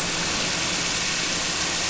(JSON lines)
{"label": "anthrophony, boat engine", "recorder": "SoundTrap 300"}